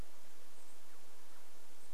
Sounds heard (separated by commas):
Douglas squirrel chirp, unidentified bird chip note